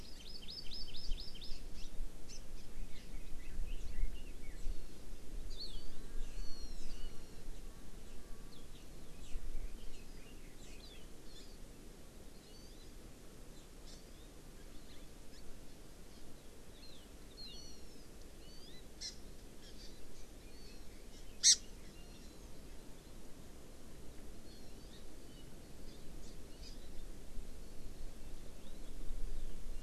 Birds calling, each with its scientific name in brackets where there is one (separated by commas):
Red-billed Leiothrix (Leiothrix lutea), Hawaii Amakihi (Chlorodrepanis virens), Hawaiian Hawk (Buteo solitarius)